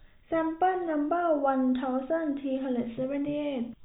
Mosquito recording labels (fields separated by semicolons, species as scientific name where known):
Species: no mosquito; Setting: cup